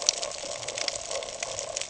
{"label": "ambient", "recorder": "HydroMoth"}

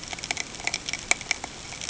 {"label": "ambient", "recorder": "HydroMoth"}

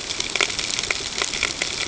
{"label": "ambient", "recorder": "HydroMoth"}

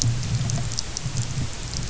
{"label": "anthrophony, boat engine", "recorder": "SoundTrap 300"}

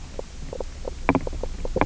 {"label": "biophony, knock croak", "recorder": "SoundTrap 300"}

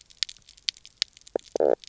{"label": "biophony, knock croak", "recorder": "SoundTrap 300"}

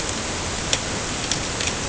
{"label": "ambient", "recorder": "HydroMoth"}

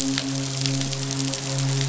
{"label": "biophony, midshipman", "recorder": "SoundTrap 500"}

